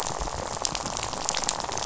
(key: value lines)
label: biophony, rattle
recorder: SoundTrap 500